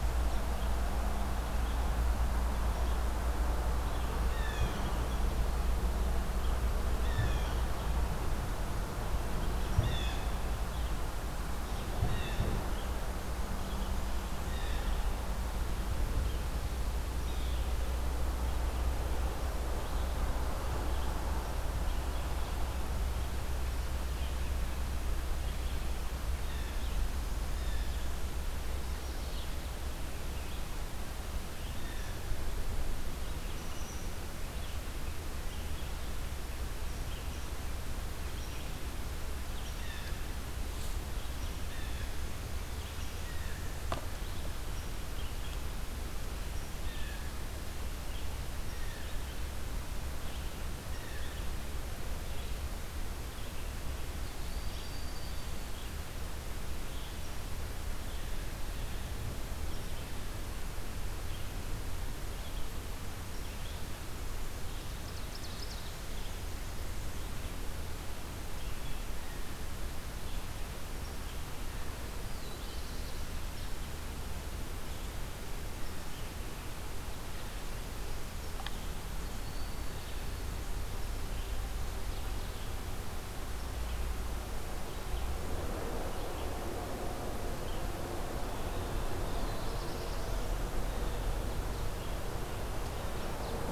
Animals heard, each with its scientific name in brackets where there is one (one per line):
Red-eyed Vireo (Vireo olivaceus)
Black-throated Blue Warbler (Setophaga caerulescens)
Blue Jay (Cyanocitta cristata)
Broad-winged Hawk (Buteo platypterus)
Ovenbird (Seiurus aurocapilla)